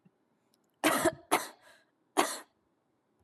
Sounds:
Cough